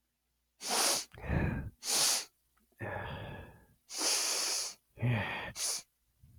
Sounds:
Sniff